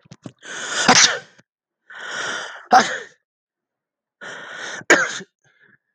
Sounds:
Sneeze